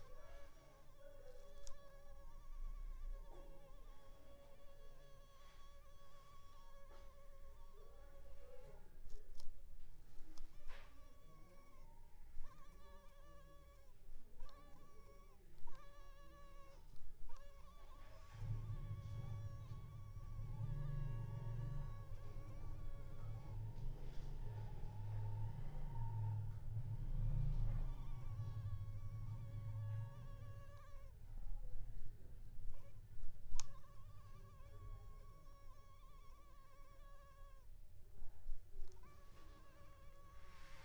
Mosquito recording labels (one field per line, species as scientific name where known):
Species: Culex pipiens complex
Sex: female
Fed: unfed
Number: one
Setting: cup